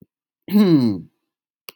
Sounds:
Throat clearing